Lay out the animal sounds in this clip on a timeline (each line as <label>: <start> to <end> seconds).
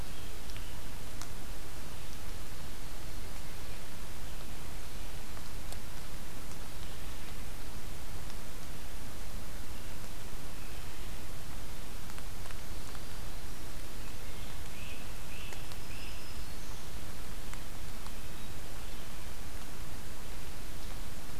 Red-eyed Vireo (Vireo olivaceus): 0.0 to 7.4 seconds
Red-eyed Vireo (Vireo olivaceus): 9.5 to 21.4 seconds
Black-throated Green Warbler (Setophaga virens): 12.3 to 13.9 seconds
Wood Thrush (Hylocichla mustelina): 13.9 to 14.8 seconds
Great Crested Flycatcher (Myiarchus crinitus): 14.7 to 16.3 seconds
Black-throated Green Warbler (Setophaga virens): 15.7 to 16.9 seconds